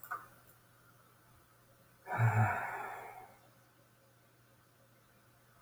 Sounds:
Sigh